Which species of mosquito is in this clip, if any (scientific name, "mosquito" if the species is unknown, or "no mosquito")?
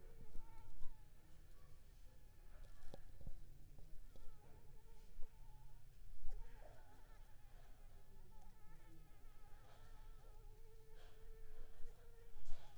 Anopheles arabiensis